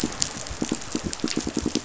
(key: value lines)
label: biophony, pulse
recorder: SoundTrap 500